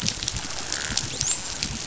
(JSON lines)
{"label": "biophony, dolphin", "recorder": "SoundTrap 500"}